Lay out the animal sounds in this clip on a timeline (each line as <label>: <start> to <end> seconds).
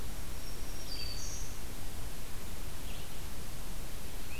Black-throated Green Warbler (Setophaga virens): 0.0 to 1.8 seconds
Red-eyed Vireo (Vireo olivaceus): 0.0 to 4.4 seconds